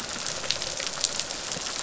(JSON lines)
{"label": "biophony", "recorder": "SoundTrap 500"}